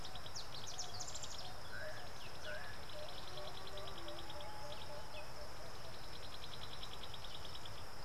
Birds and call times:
Variable Sunbird (Cinnyris venustus): 0:01.2

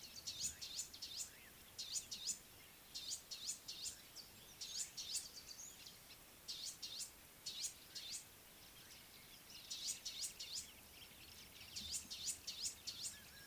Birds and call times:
Variable Sunbird (Cinnyris venustus): 0:02.0, 0:12.3

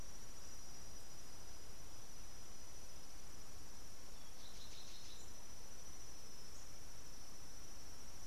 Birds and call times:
Cinnamon Bracken-Warbler (Bradypterus cinnamomeus): 0:04.9

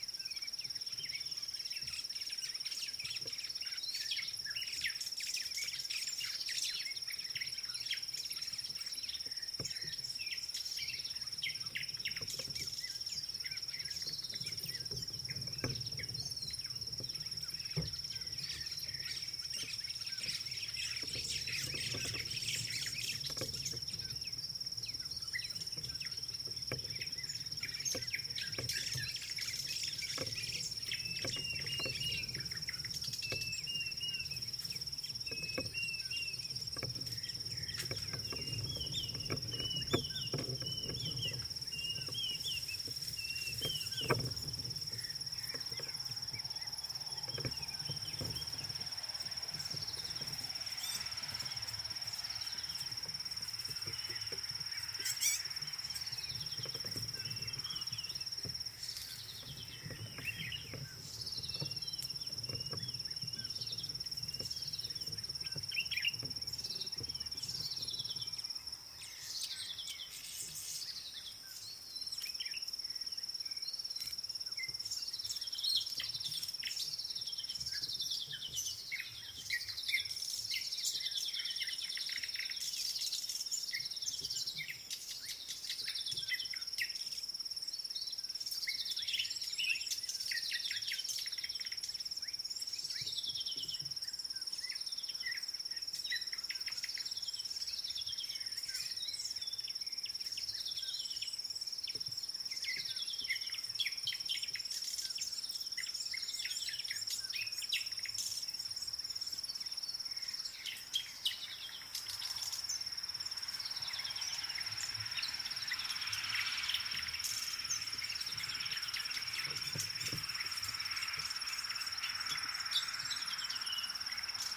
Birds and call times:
White-browed Sparrow-Weaver (Plocepasser mahali): 0:21.3
Dideric Cuckoo (Chrysococcyx caprius): 0:31.5, 0:33.8, 0:35.8, 0:39.6, 0:42.2, 0:43.7
White-rumped Shrike (Eurocephalus ruppelli): 0:50.9, 0:55.2
Red-backed Scrub-Robin (Cercotrichas leucophrys): 0:56.4, 0:59.3, 1:01.4, 1:04.6, 1:08.0, 1:09.7, 1:11.1, 1:17.3, 1:21.4, 1:33.3, 1:40.7, 1:43.1, 1:54.0
Common Bulbul (Pycnonotus barbatus): 1:05.9
Chestnut Weaver (Ploceus rubiginosus): 1:10.4
Red-cheeked Cordonbleu (Uraeginthus bengalus): 1:46.4

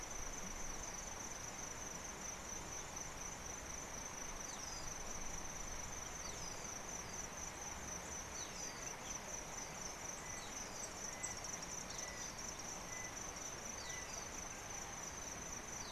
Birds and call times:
Rufous Chatterer (Argya rubiginosa): 0:06.3, 0:08.4

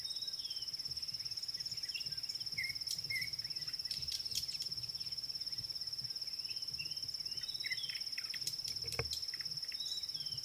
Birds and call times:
Red-cheeked Cordonbleu (Uraeginthus bengalus): 0:01.6

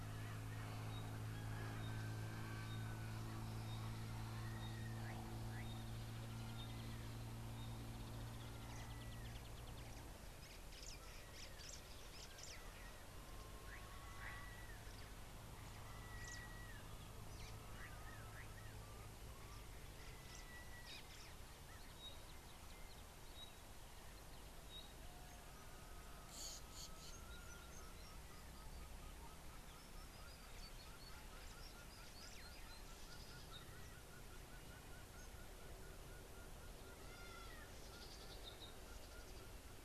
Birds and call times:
White-browed Sparrow-Weaver (Plocepasser mahali): 0:11.6
Pygmy Batis (Batis perkeo): 0:23.4
Spotted Morning-Thrush (Cichladusa guttata): 0:26.4
Red-backed Scrub-Robin (Cercotrichas leucophrys): 0:38.2

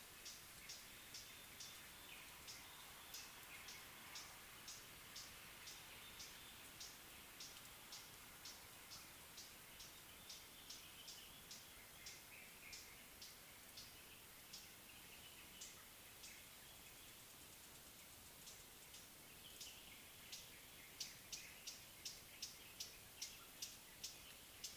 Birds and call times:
Northern Double-collared Sunbird (Cinnyris reichenowi): 0:08.5

